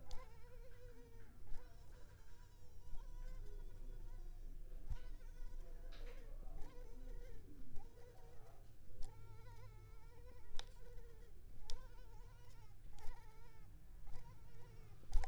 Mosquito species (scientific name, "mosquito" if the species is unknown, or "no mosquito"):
Culex pipiens complex